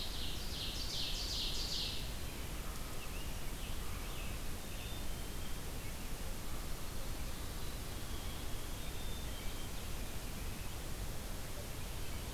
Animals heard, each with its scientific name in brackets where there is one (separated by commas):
Black-capped Chickadee (Poecile atricapillus), Ovenbird (Seiurus aurocapilla), Mourning Warbler (Geothlypis philadelphia), Veery (Catharus fuscescens), American Robin (Turdus migratorius)